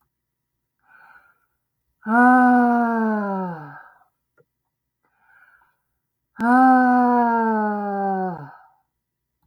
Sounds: Sigh